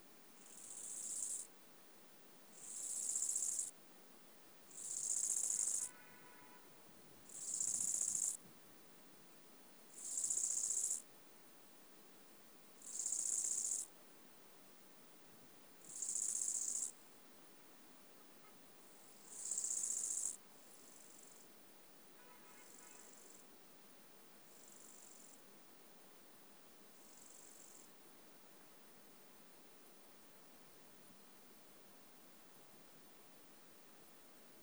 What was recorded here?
Chorthippus eisentrauti, an orthopteran